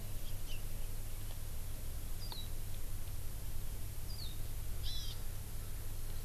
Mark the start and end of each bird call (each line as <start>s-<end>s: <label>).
2.2s-2.5s: Warbling White-eye (Zosterops japonicus)
4.1s-4.4s: Warbling White-eye (Zosterops japonicus)
4.8s-5.2s: Hawaii Amakihi (Chlorodrepanis virens)